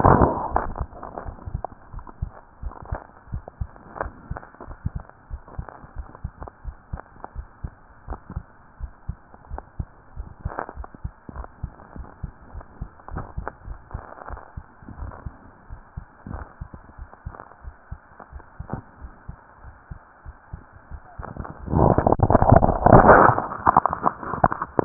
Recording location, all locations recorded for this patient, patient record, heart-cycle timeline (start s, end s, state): pulmonary valve (PV)
pulmonary valve (PV)+tricuspid valve (TV)+mitral valve (MV)
#Age: Child
#Sex: Female
#Height: nan
#Weight: nan
#Pregnancy status: False
#Murmur: Absent
#Murmur locations: nan
#Most audible location: nan
#Systolic murmur timing: nan
#Systolic murmur shape: nan
#Systolic murmur grading: nan
#Systolic murmur pitch: nan
#Systolic murmur quality: nan
#Diastolic murmur timing: nan
#Diastolic murmur shape: nan
#Diastolic murmur grading: nan
#Diastolic murmur pitch: nan
#Diastolic murmur quality: nan
#Outcome: Abnormal
#Campaign: 2015 screening campaign
0.00	2.60	unannotated
2.60	2.76	S1
2.76	2.88	systole
2.88	3.04	S2
3.04	3.30	diastole
3.30	3.44	S1
3.44	3.54	systole
3.54	3.68	S2
3.68	3.97	diastole
3.97	4.12	S1
4.12	4.28	systole
4.28	4.42	S2
4.42	4.68	diastole
4.68	4.78	S1
4.78	4.95	systole
4.95	5.06	S2
5.06	5.30	diastole
5.30	5.44	S1
5.44	5.56	systole
5.56	5.66	S2
5.66	5.95	diastole
5.95	6.06	S1
6.06	6.22	systole
6.22	6.33	S2
6.33	6.64	diastole
6.64	6.76	S1
6.76	6.90	systole
6.90	7.01	S2
7.01	7.33	diastole
7.33	7.46	S1
7.46	7.62	systole
7.62	7.75	S2
7.75	8.08	diastole
8.08	8.22	S1
8.22	8.30	systole
8.30	8.44	S2
8.44	8.80	diastole
8.80	8.92	S1
8.92	9.06	diastole
9.06	9.16	S1
9.16	9.24	systole
9.24	9.32	S2
9.32	9.52	diastole
9.52	9.66	S1
9.66	9.78	systole
9.78	9.92	S2
9.92	10.14	diastole
10.14	10.28	S1
10.28	10.40	systole
10.40	10.54	S2
10.54	10.74	diastole
10.74	10.88	S1
10.88	11.02	systole
11.02	11.12	S2
11.12	11.34	diastole
11.34	11.48	S1
11.48	11.58	systole
11.58	11.72	S2
11.72	11.94	diastole
11.94	12.08	S1
12.08	12.18	systole
12.18	12.30	S2
12.30	12.52	diastole
12.52	12.66	S1
12.66	12.80	systole
12.80	12.90	S2
12.90	13.12	diastole
13.12	13.28	S1
13.28	13.36	systole
13.36	13.48	S2
13.48	24.85	unannotated